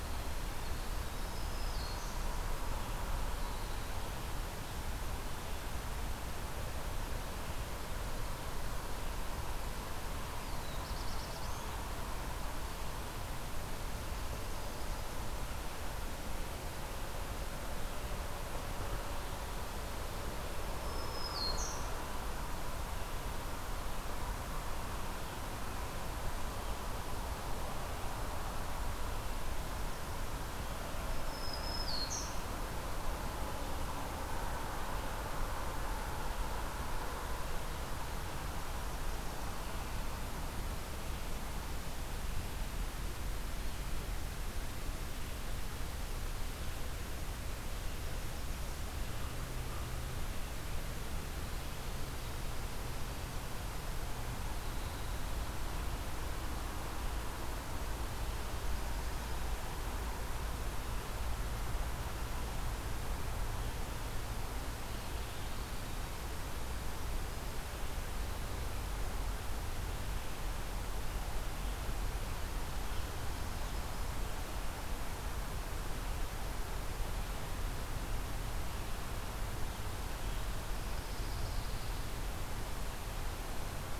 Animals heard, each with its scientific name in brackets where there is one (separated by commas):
Winter Wren (Troglodytes hiemalis), Black-throated Blue Warbler (Setophaga caerulescens), Black-throated Green Warbler (Setophaga virens), Pine Warbler (Setophaga pinus)